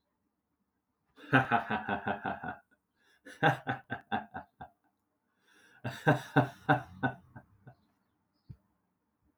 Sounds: Laughter